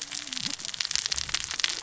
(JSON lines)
{"label": "biophony, cascading saw", "recorder": "SoundTrap 600 or HydroMoth"}